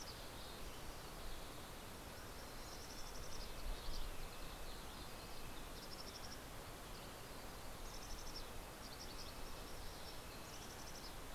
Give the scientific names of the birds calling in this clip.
Poecile gambeli, Sitta canadensis